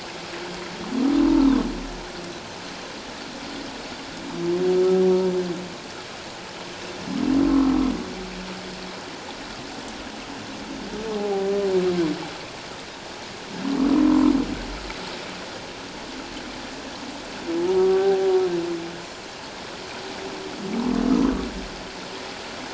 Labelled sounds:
11.2	11.5	humpback whale, 0.78 to 0.84 kHz
14.0	14.3	humpback whale, 0.97 to 1.1 kHz
17.6	18.3	humpback whale, 0.78 to 1.6 kHz

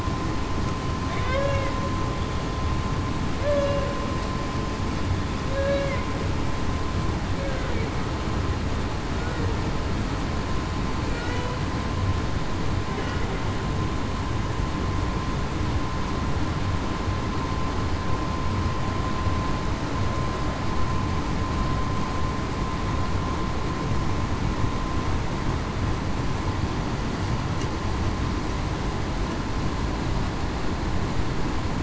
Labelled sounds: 1.2	1.7	humpback whale, 1.5 to 1.7 kHz
3.4	3.9	humpback whale, 0.47 to 0.61 kHz
5.5	6.0	humpback whale, 0.52 to 0.58 kHz

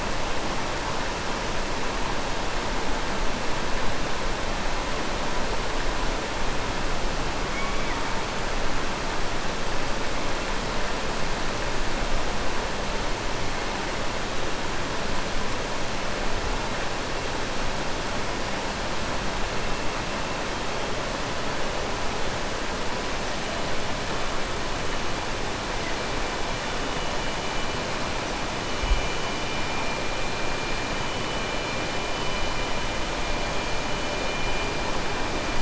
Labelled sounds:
7.4	8.0	killer whale, southern resident, 1.8 to 2.4 kHz

